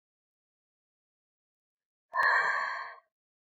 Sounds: Sigh